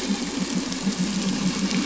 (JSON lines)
{"label": "anthrophony, boat engine", "recorder": "SoundTrap 500"}